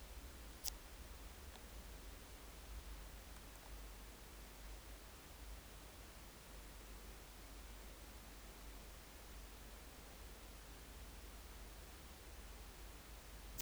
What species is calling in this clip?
Leptophyes boscii